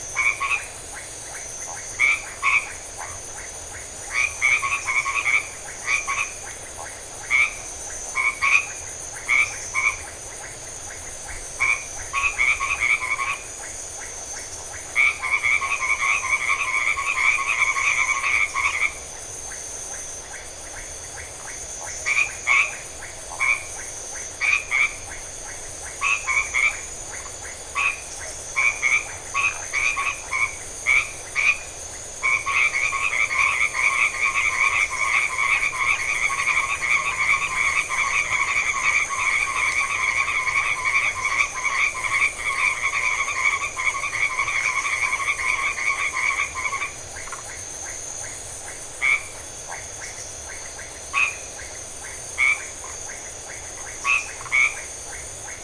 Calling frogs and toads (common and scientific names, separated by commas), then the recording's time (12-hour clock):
white-edged tree frog (Boana albomarginata), Iporanga white-lipped frog (Leptodactylus notoaktites), Phyllomedusa distincta
9:00pm